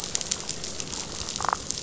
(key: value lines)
label: biophony, damselfish
recorder: SoundTrap 500